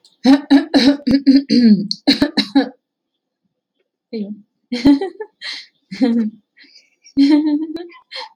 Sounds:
Laughter